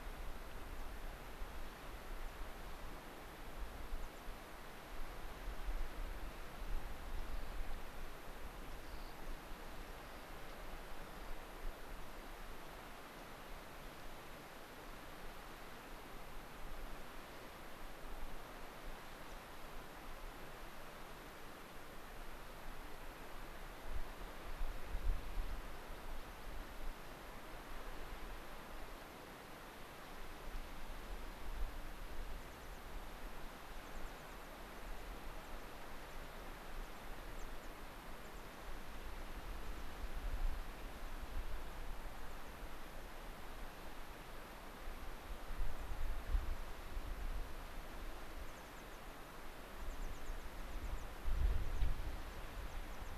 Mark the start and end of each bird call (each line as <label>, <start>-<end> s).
American Pipit (Anthus rubescens), 0.7-0.8 s
American Pipit (Anthus rubescens), 3.9-4.2 s
Rock Wren (Salpinctes obsoletus), 7.1-7.6 s
Rock Wren (Salpinctes obsoletus), 8.6-9.1 s
Rock Wren (Salpinctes obsoletus), 9.9-10.2 s
American Pipit (Anthus rubescens), 19.2-19.3 s
American Pipit (Anthus rubescens), 25.1-26.5 s
American Pipit (Anthus rubescens), 32.3-32.8 s
American Pipit (Anthus rubescens), 33.7-34.4 s
American Pipit (Anthus rubescens), 34.7-35.0 s
American Pipit (Anthus rubescens), 35.4-35.5 s
American Pipit (Anthus rubescens), 36.0-36.4 s
American Pipit (Anthus rubescens), 36.8-37.0 s
American Pipit (Anthus rubescens), 37.3-37.7 s
American Pipit (Anthus rubescens), 38.2-38.4 s
American Pipit (Anthus rubescens), 39.6-39.8 s
American Pipit (Anthus rubescens), 42.2-42.5 s
American Pipit (Anthus rubescens), 45.6-46.0 s
American Pipit (Anthus rubescens), 47.1-47.2 s
American Pipit (Anthus rubescens), 48.4-49.0 s
American Pipit (Anthus rubescens), 49.7-51.8 s
Gray-crowned Rosy-Finch (Leucosticte tephrocotis), 51.7-51.8 s
American Pipit (Anthus rubescens), 52.2-53.1 s